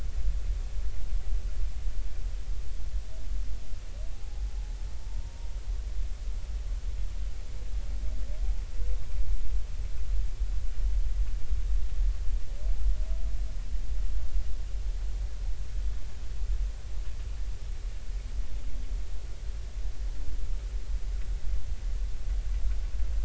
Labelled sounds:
4.1	5.5	humpback whale, 0.80 to 0.99 kHz

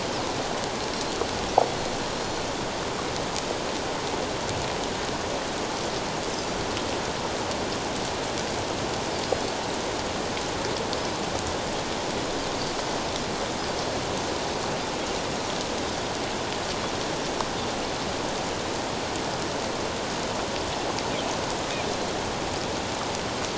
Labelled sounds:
2.1	2.4	Pacific white-sided dolphin, 4.1 to 4.3 kHz

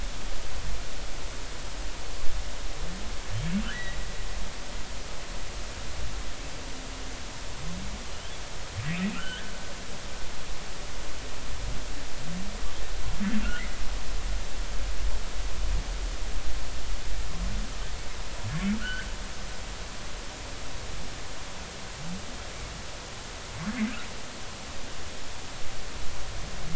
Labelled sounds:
3.7	4.0	humpback whale, 1.8 to 2.0 kHz
9.1	9.5	humpback whale, 1.2 to 1.9 kHz
18.8	19.1	humpback whale, 1.3 to 1.8 kHz

